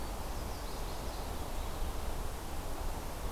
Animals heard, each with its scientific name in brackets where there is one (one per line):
Chestnut-sided Warbler (Setophaga pensylvanica)